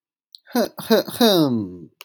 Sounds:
Cough